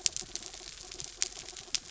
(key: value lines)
label: anthrophony, mechanical
recorder: SoundTrap 300